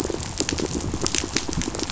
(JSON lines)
{"label": "biophony, pulse", "recorder": "SoundTrap 500"}